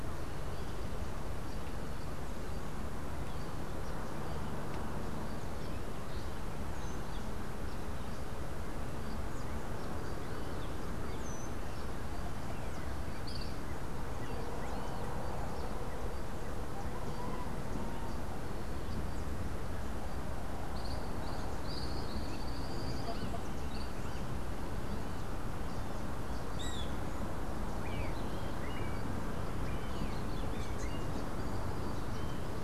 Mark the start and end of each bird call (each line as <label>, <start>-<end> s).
Tropical Kingbird (Tyrannus melancholicus), 20.7-23.3 s
Great Kiskadee (Pitangus sulphuratus), 26.4-27.0 s
Melodious Blackbird (Dives dives), 27.6-32.6 s